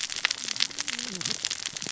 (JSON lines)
{"label": "biophony, cascading saw", "recorder": "SoundTrap 600 or HydroMoth"}